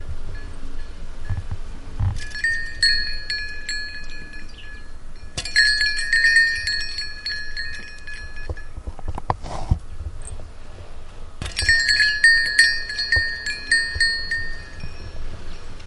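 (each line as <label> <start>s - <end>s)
Bells chiming in the distance. 0.0s - 2.0s
Bells chime and fade away. 2.0s - 5.2s
Bells being struck gradually getting quieter. 5.3s - 9.2s
A microphone is being moved. 9.2s - 11.4s
Bells being struck gradually getting quieter. 11.4s - 15.9s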